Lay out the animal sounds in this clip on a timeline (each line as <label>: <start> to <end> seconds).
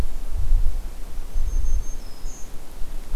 Blackburnian Warbler (Setophaga fusca): 1.1 to 2.6 seconds